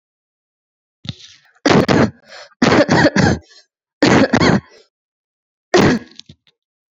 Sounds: Cough